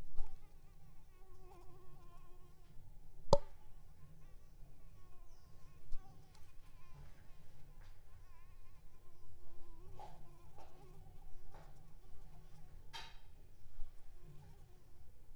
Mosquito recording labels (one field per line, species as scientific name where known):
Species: Anopheles coustani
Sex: female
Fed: unfed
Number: one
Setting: cup